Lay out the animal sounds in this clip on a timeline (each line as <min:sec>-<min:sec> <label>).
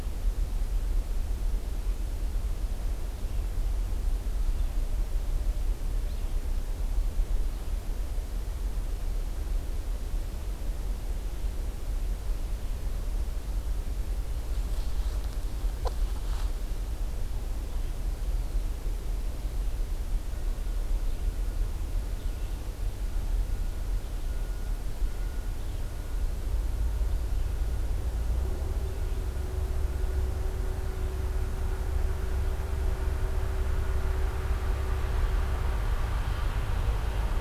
0:02.9-0:06.6 Red-eyed Vireo (Vireo olivaceus)